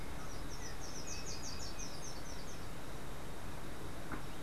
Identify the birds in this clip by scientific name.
Myioborus miniatus, Icterus chrysater